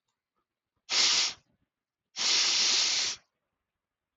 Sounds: Sniff